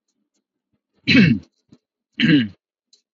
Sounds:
Throat clearing